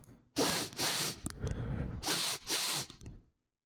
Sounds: Sniff